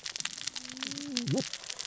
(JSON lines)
{"label": "biophony, cascading saw", "recorder": "SoundTrap 600 or HydroMoth"}